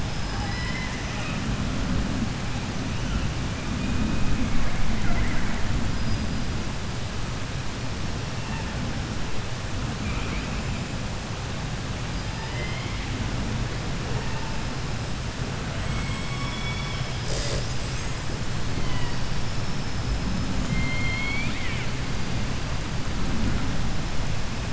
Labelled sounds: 0.0	1.7	killer whale, 0.37 to 8.0 kHz
2.6	7.9	killer whale, 0.51 to 6.1 kHz
8.1	9.2	killer whale, 0.42 to 3.3 kHz
9.9	10.8	killer whale, 0.69 to 5.6 kHz
12.0	13.4	killer whale, 0.27 to 5.4 kHz
13.7	15.2	killer whale, 0.38 to 5.4 kHz
15.7	20.3	killer whale, 0.14 to 8.0 kHz
20.5	22.0	killer whale, southern resident, J pod, call S01, 0.39 to 7.3 kHz

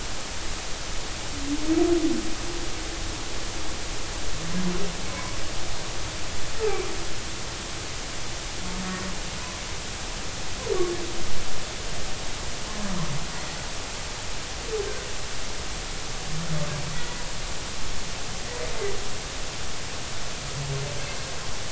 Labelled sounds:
5.1	5.4	humpback whale, 0.96 to 1.1 kHz

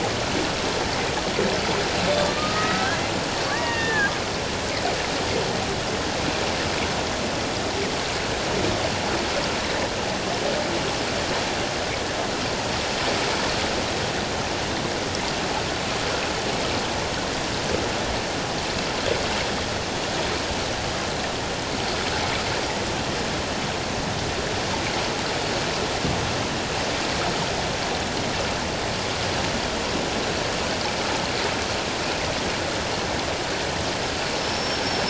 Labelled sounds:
2.1	3.0	killer whale, Bigg's (transient), 1.1 to 2.1 kHz
3.5	4.1	killer whale, Bigg's (transient), 0.81 to 2.9 kHz

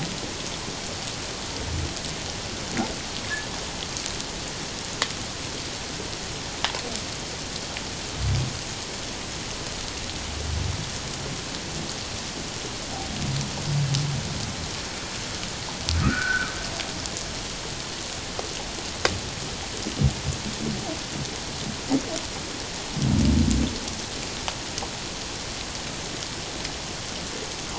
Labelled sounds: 16.0	16.5	humpback whale, 1.2 to 1.6 kHz

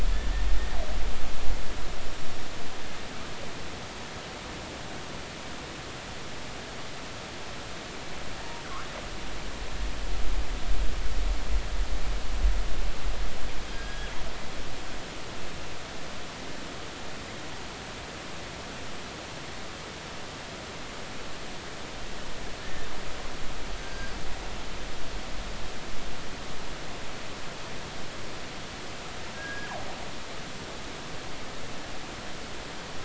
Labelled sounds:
13.7	14.1	killer whale, northern resident, G clan, GG subclan, call N28, 1.5 to 3.4 kHz
23.8	24.1	killer whale, northern resident, G clan, GG subclan, call N28, 1.5 to 1.7 kHz
29.4	29.7	killer whale, northern resident, G clan, GG subclan, call N28, 1.5 to 1.7 kHz

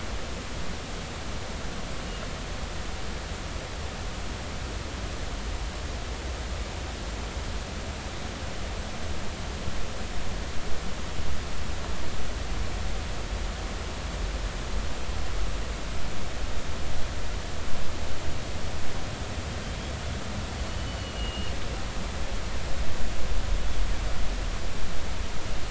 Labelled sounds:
20.7	21.5	killer whale, 2.7 to 3.1 kHz

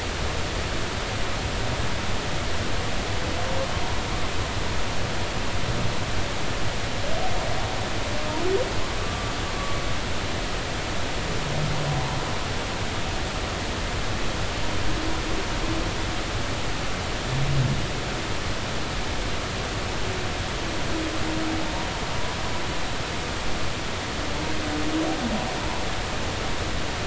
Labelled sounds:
9.0	9.3	humpback whale, 1.1 to 1.4 kHz

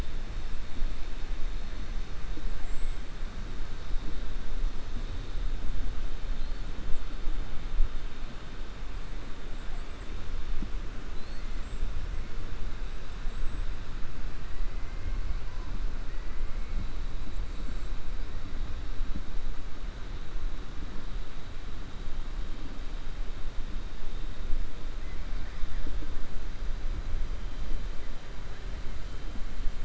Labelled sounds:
11.1	11.9	killer whale, 3.5 to 8.0 kHz

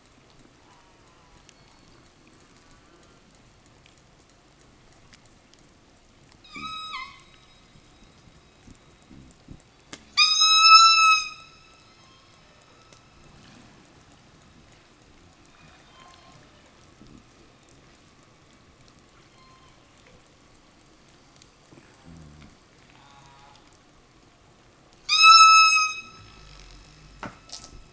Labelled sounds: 0.5	1.5	killer whale, southern resident, call S04, 0 to 3.2 kHz
2.1	3.3	killer whale, southern resident, call S04, 0 to 3.9 kHz
6.4	7.4	killer whale, southern resident, 0 to 8.0 kHz
10.0	13.0	killer whale, southern resident, 0.27 to 8.0 kHz
15.5	16.9	killer whale, southern resident, 0.43 to 5.7 kHz
19.0	20.4	killer whale, southern resident, 0.37 to 5.7 kHz
21.9	22.6	fish, 0 to 0.68 kHz
22.8	23.8	killer whale, southern resident, call S04, 0 to 4.3 kHz
24.9	26.2	killer whale, southern resident, 0.72 to 8.0 kHz

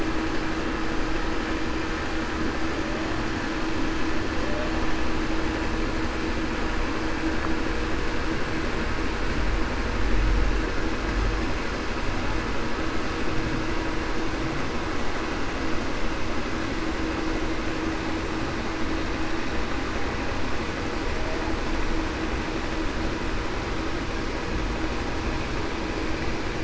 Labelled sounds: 4.3	4.7	humpback whale, 0.49 to 0.63 kHz

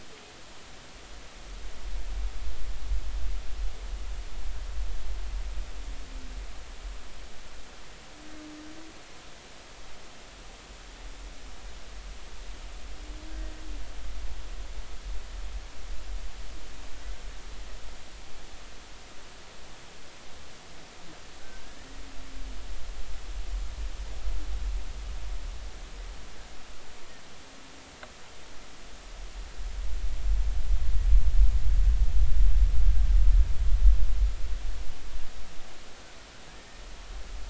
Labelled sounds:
21.4	21.9	humpback whale, 1.4 to 2.0 kHz
36.5	36.8	humpback whale, 1.6 to 1.9 kHz

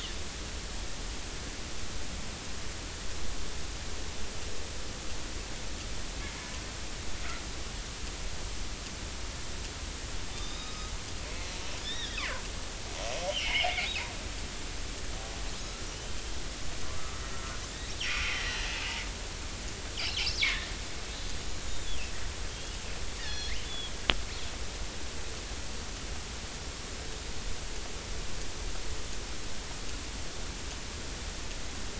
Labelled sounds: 10.3	10.9	killer whale, northern resident, 1.2 to 5.1 kHz
11.8	12.2	killer whale, northern resident, 1.6 to 3.9 kHz
13.3	13.7	killer whale, northern resident, 2.0 to 3.3 kHz
15.9	16.2	killer whale, northern resident, 2.8 to 3.2 kHz
18.1	18.7	killer whale, northern resident, 1.7 to 2.6 kHz
20.4	20.7	killer whale, northern resident, 1.7 to 2.4 kHz
21.5	22.0	killer whale, northern resident, 6.7 to 7.1 kHz
23.2	24.5	killer whale, northern resident, 1.6 to 4.4 kHz

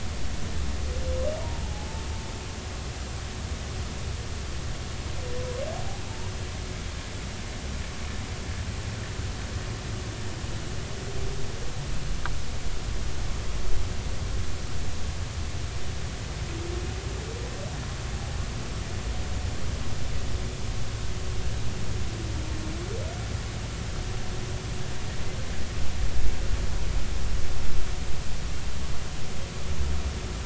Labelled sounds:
1.4	2.0	humpback whale, 0.80 to 1.1 kHz

